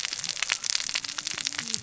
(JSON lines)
{"label": "biophony, cascading saw", "recorder": "SoundTrap 600 or HydroMoth"}